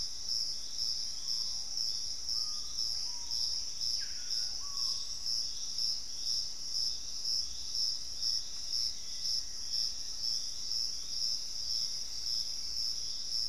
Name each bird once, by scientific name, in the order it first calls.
Lipaugus vociferans, Formicarius analis, Turdus hauxwelli